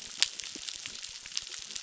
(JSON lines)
{"label": "biophony, crackle", "recorder": "SoundTrap 600"}